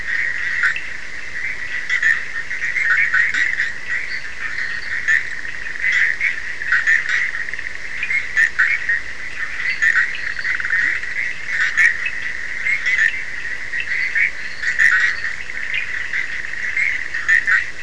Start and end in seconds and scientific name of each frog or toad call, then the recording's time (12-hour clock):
0.0	17.8	Boana bischoffi
0.0	17.8	Sphaenorhynchus surdus
3.1	3.7	Leptodactylus latrans
4.0	5.2	Boana leptolineata
9.5	10.7	Boana leptolineata
10.4	11.3	Leptodactylus latrans
13.7	15.4	Boana leptolineata
1:30am